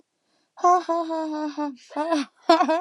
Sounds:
Laughter